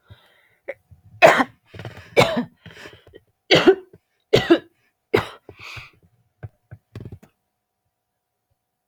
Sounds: Cough